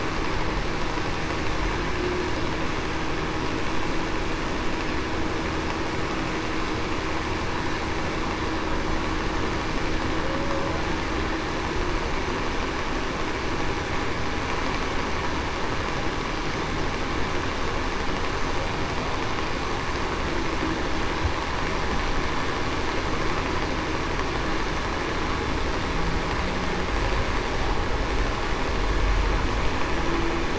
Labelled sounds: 10.2	10.6	humpback whale, 0.49 to 0.61 kHz

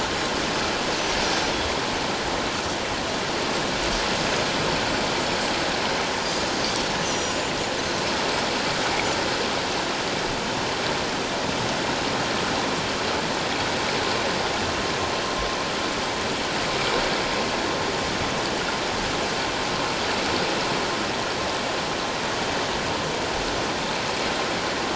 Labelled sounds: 7.0	7.5	Pacific white-sided dolphin, 5.6 to 7.1 kHz

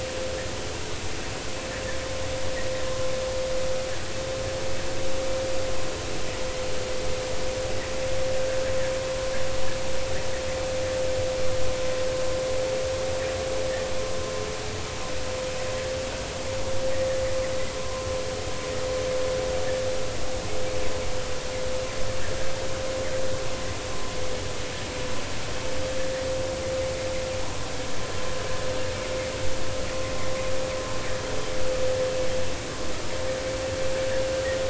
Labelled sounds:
17.8	18.1	vessel noise, 0.96 to 1.1 kHz

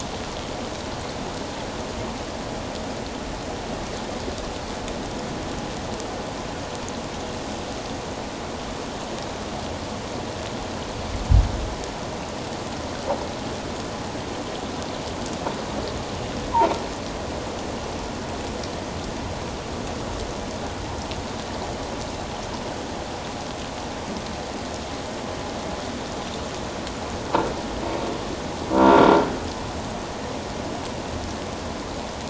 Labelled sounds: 28.7	29.3	croaking sound likely from a nearby submerged object, 0.88 to 1.5 kHz

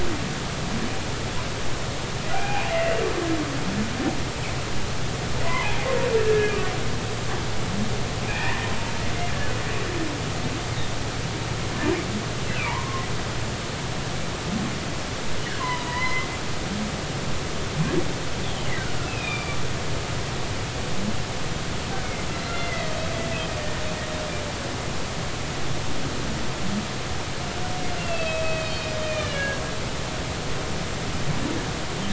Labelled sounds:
2.3	3.0	humpback whale, 0.80 to 2.9 kHz
5.4	6.5	humpback whale, 0.80 to 2.2 kHz
8.3	8.7	humpback whale, 1.7 to 2.6 kHz
12.4	13.0	humpback whale, 0.83 to 2.8 kHz
15.6	16.3	humpback whale, 0.93 to 2.1 kHz
19.0	19.6	humpback whale, 2.3 to 3.8 kHz
22.4	22.9	humpback whale, 1.9 to 2.1 kHz
28.0	29.6	humpback whale, 1.6 to 4.5 kHz

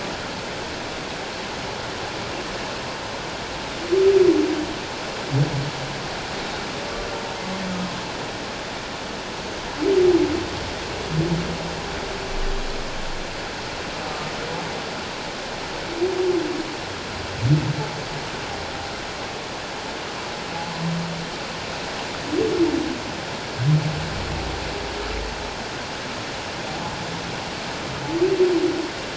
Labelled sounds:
14.1	14.3	humpback whale, 1.16 to 1.25 kHz
20.5	20.8	humpback whale, 0.78 to 1.1 kHz

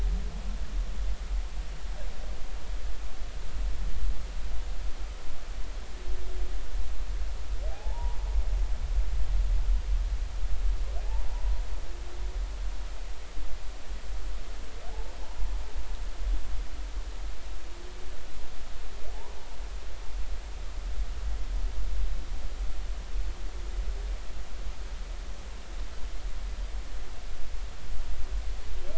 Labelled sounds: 7.7	8.2	humpback whale, 0.80 to 1.0 kHz
11.3	11.6	humpback whale, 0.86 to 1.0 kHz
14.9	15.1	humpback whale, 0.80 to 0.96 kHz
19.1	19.4	humpback whale, 0.80 to 1.2 kHz

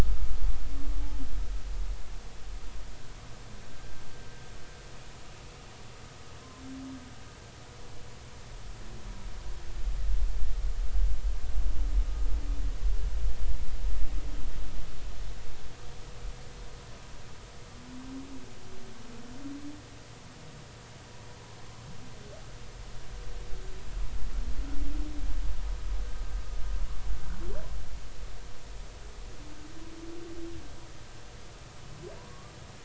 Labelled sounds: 32.3	32.5	humpback whale, 1.1 to 1.2 kHz

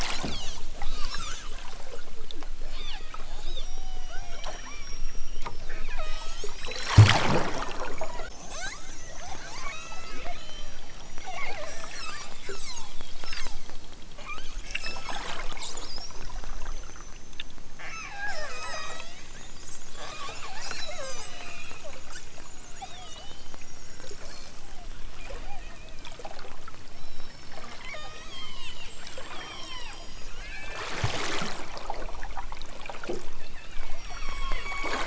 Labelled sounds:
0.2	0.6	killer whale, southern Alaska resident, 2.5 to 6.4 kHz
2.6	5.5	killer whale, southern Alaska resident, 0.18 to 6.5 kHz
5.9	6.9	killer whale, southern Alaska resident, 0.28 to 6.1 kHz
8.0	13.7	killer whale, southern Alaska resident, 0.18 to 6.2 kHz
14.1	15.2	killer whale, southern Alaska resident, 0.65 to 5.7 kHz
17.8	18.2	killer whale, southern Alaska resident, 0.78 to 6.8 kHz
18.5	19.2	killer whale, southern Alaska resident, 0.23 to 6.1 kHz
20.0	21.9	killer whale, southern Alaska resident, 0.18 to 6.8 kHz
22.8	24.3	killer whale, southern Alaska resident, 0.46 to 6.0 kHz
25.4	26.0	killer whale, southern Alaska resident, 0.37 to 2.7 kHz
26.9	28.8	killer whale, southern Alaska resident, 0.32 to 8.0 kHz
29.3	30.9	killer whale, southern Alaska resident, 0.23 to 6.0 kHz
33.3	35.0	killer whale, southern Alaska resident, 0.78 to 7.1 kHz

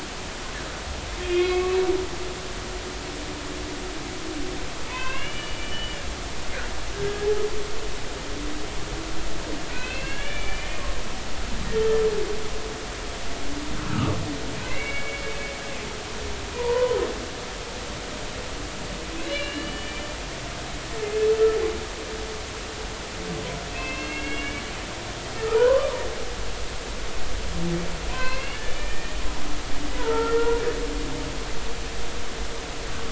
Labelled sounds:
1.2	1.8	humpback whale, 1.0 to 3.3 kHz
4.9	6.0	humpback whale, 0.86 to 3.0 kHz
9.7	10.7	humpback whale, 1.4 to 3.0 kHz
13.9	15.3	humpback whale, 1.1 to 2.9 kHz
16.5	17.0	humpback whale, 0.86 to 1.1 kHz
19.2	19.9	humpback whale, 1.6 to 3.0 kHz
23.7	24.6	humpback whale, 2.0 to 3.4 kHz
25.4	25.9	humpback whale, 0.90 to 1.6 kHz
28.1	29.2	humpback whale, 0.93 to 4.3 kHz
30.0	30.6	humpback whale, 0.86 to 2.0 kHz

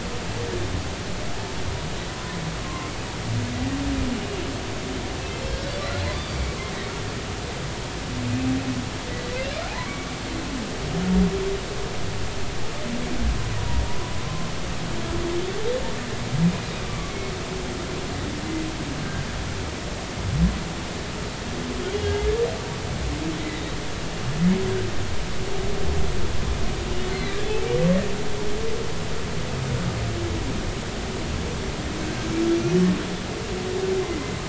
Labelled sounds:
2.1	3.0	humpback whale, 0.96 to 2.2 kHz
6.1	6.4	humpback whale, 3.4 to 4.8 kHz
9.8	10.1	humpback whale, 2.1 to 2.3 kHz
13.6	14.5	humpback whale, 0.90 to 1.1 kHz
16.8	17.2	humpback whale, 1.1 to 1.2 kHz
19.0	19.3	humpback whale, 1.5 to 1.7 kHz
21.8	22.1	humpback whale, 3.2 to 3.4 kHz
27.1	27.4	humpback whale, 3.7 to 4.3 kHz
34.0	34.3	humpback whale, 2.0 to 2.1 kHz

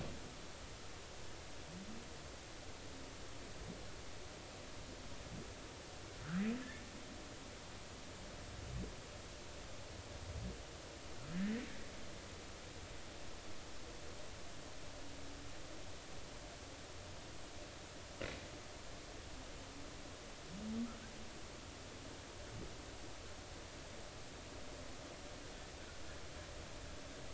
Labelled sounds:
11.3	11.6	humpback whale, 1.6 to 2.0 kHz

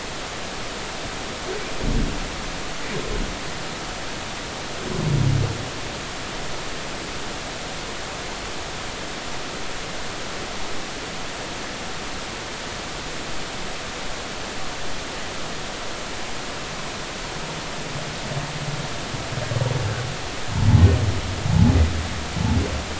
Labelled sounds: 21.5	21.8	humpback whale, 0.80 to 0.90 kHz

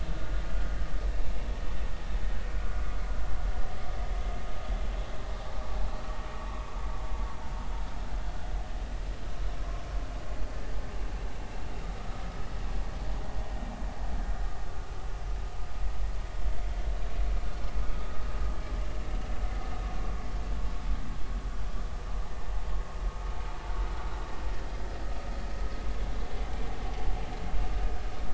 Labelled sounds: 11.9	12.2	vessel noise, 1.2 to 1.4 kHz

